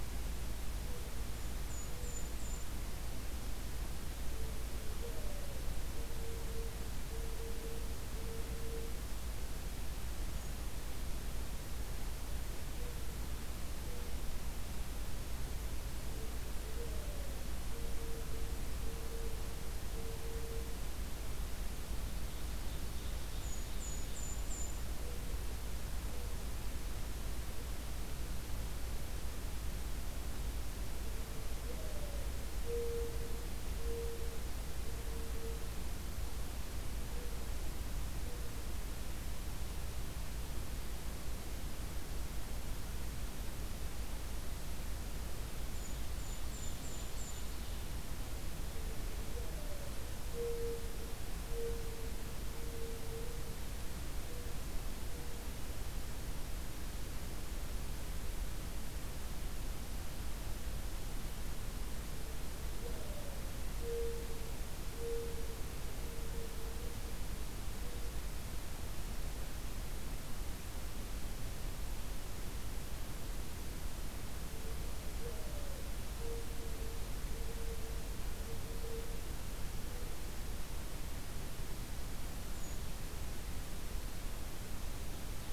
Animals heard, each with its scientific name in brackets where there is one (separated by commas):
Mourning Dove (Zenaida macroura), Golden-crowned Kinglet (Regulus satrapa), Ovenbird (Seiurus aurocapilla)